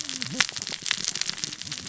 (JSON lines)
{"label": "biophony, cascading saw", "recorder": "SoundTrap 600 or HydroMoth"}